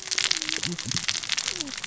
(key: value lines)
label: biophony, cascading saw
recorder: SoundTrap 600 or HydroMoth